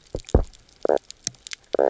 {"label": "biophony, knock croak", "recorder": "SoundTrap 300"}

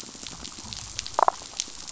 {"label": "biophony, damselfish", "recorder": "SoundTrap 500"}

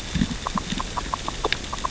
{"label": "biophony, grazing", "recorder": "SoundTrap 600 or HydroMoth"}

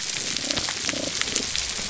{"label": "biophony, damselfish", "recorder": "SoundTrap 300"}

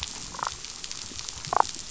{"label": "biophony, damselfish", "recorder": "SoundTrap 500"}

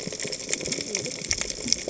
{"label": "biophony, cascading saw", "recorder": "HydroMoth"}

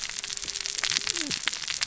{"label": "biophony, cascading saw", "recorder": "SoundTrap 600 or HydroMoth"}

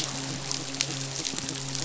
{"label": "biophony", "recorder": "SoundTrap 500"}
{"label": "biophony, midshipman", "recorder": "SoundTrap 500"}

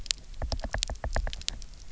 {"label": "biophony, knock", "recorder": "SoundTrap 300"}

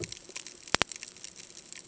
{"label": "ambient", "recorder": "HydroMoth"}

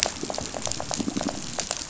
{"label": "biophony, rattle", "recorder": "SoundTrap 500"}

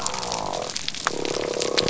{"label": "biophony", "recorder": "SoundTrap 300"}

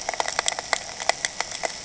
{"label": "anthrophony, boat engine", "recorder": "HydroMoth"}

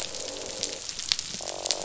{"label": "biophony, croak", "recorder": "SoundTrap 500"}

